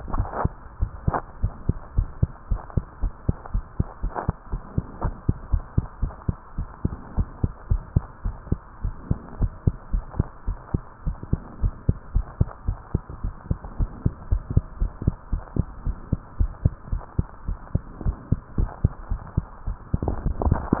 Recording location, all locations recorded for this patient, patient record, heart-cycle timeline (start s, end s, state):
tricuspid valve (TV)
aortic valve (AV)+pulmonary valve (PV)+tricuspid valve (TV)+mitral valve (MV)
#Age: Child
#Sex: Female
#Height: 115.0 cm
#Weight: 19.6 kg
#Pregnancy status: False
#Murmur: Absent
#Murmur locations: nan
#Most audible location: nan
#Systolic murmur timing: nan
#Systolic murmur shape: nan
#Systolic murmur grading: nan
#Systolic murmur pitch: nan
#Systolic murmur quality: nan
#Diastolic murmur timing: nan
#Diastolic murmur shape: nan
#Diastolic murmur grading: nan
#Diastolic murmur pitch: nan
#Diastolic murmur quality: nan
#Outcome: Normal
#Campaign: 2015 screening campaign
0.00	0.12	diastole
0.12	0.30	S1
0.30	0.44	systole
0.44	0.54	S2
0.54	0.74	diastole
0.74	0.92	S1
0.92	1.06	systole
1.06	1.22	S2
1.22	1.40	diastole
1.40	1.54	S1
1.54	1.66	systole
1.66	1.76	S2
1.76	1.90	diastole
1.90	2.08	S1
2.08	2.20	systole
2.20	2.30	S2
2.30	2.48	diastole
2.48	2.62	S1
2.62	2.74	systole
2.74	2.84	S2
2.84	3.00	diastole
3.00	3.12	S1
3.12	3.24	systole
3.24	3.36	S2
3.36	3.52	diastole
3.52	3.64	S1
3.64	3.76	systole
3.76	3.88	S2
3.88	4.02	diastole
4.02	4.12	S1
4.12	4.26	systole
4.26	4.38	S2
4.38	4.52	diastole
4.52	4.62	S1
4.62	4.74	systole
4.74	4.86	S2
4.86	5.02	diastole
5.02	5.16	S1
5.16	5.24	systole
5.24	5.36	S2
5.36	5.52	diastole
5.52	5.64	S1
5.64	5.74	systole
5.74	5.86	S2
5.86	6.00	diastole
6.00	6.14	S1
6.14	6.24	systole
6.24	6.38	S2
6.38	6.56	diastole
6.56	6.68	S1
6.68	6.80	systole
6.80	6.94	S2
6.94	7.14	diastole
7.14	7.28	S1
7.28	7.40	systole
7.40	7.54	S2
7.54	7.68	diastole
7.68	7.82	S1
7.82	7.92	systole
7.92	8.04	S2
8.04	8.22	diastole
8.22	8.36	S1
8.36	8.48	systole
8.48	8.62	S2
8.62	8.82	diastole
8.82	8.94	S1
8.94	9.08	systole
9.08	9.20	S2
9.20	9.38	diastole
9.38	9.52	S1
9.52	9.62	systole
9.62	9.74	S2
9.74	9.90	diastole
9.90	10.04	S1
10.04	10.16	systole
10.16	10.30	S2
10.30	10.48	diastole
10.48	10.58	S1
10.58	10.70	systole
10.70	10.84	S2
10.84	11.04	diastole
11.04	11.18	S1
11.18	11.30	systole
11.30	11.44	S2
11.44	11.60	diastole
11.60	11.74	S1
11.74	11.86	systole
11.86	11.96	S2
11.96	12.12	diastole
12.12	12.26	S1
12.26	12.36	systole
12.36	12.52	S2
12.52	12.66	diastole
12.66	12.78	S1
12.78	12.90	systole
12.90	13.02	S2
13.02	13.22	diastole
13.22	13.34	S1
13.34	13.48	systole
13.48	13.58	S2
13.58	13.76	diastole
13.76	13.90	S1
13.90	14.04	systole
14.04	14.16	S2
14.16	14.30	diastole
14.30	14.42	S1
14.42	14.54	systole
14.54	14.64	S2
14.64	14.78	diastole
14.78	14.92	S1
14.92	15.02	systole
15.02	15.14	S2
15.14	15.30	diastole
15.30	15.44	S1
15.44	15.56	systole
15.56	15.66	S2
15.66	15.84	diastole
15.84	15.96	S1
15.96	16.08	systole
16.08	16.20	S2
16.20	16.34	diastole
16.34	16.52	S1
16.52	16.64	systole
16.64	16.74	S2
16.74	16.90	diastole
16.90	17.02	S1
17.02	17.14	systole
17.14	17.26	S2
17.26	17.46	diastole
17.46	17.58	S1
17.58	17.70	systole
17.70	17.82	S2
17.82	18.02	diastole
18.02	18.16	S1
18.16	18.28	systole
18.28	18.40	S2
18.40	18.56	diastole
18.56	18.70	S1
18.70	18.82	systole
18.82	18.96	S2
18.96	19.10	diastole
19.10	19.22	S1
19.22	19.34	systole
19.34	19.46	S2
19.46	19.66	diastole
19.66	19.78	S1
19.78	20.04	systole
20.04	20.20	S2
20.20	20.40	diastole
20.40	20.58	S1
20.58	20.70	systole
20.70	20.80	S2